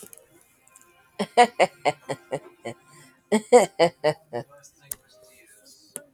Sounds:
Laughter